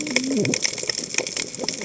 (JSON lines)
{"label": "biophony, cascading saw", "recorder": "HydroMoth"}